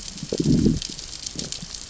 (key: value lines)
label: biophony, growl
recorder: SoundTrap 600 or HydroMoth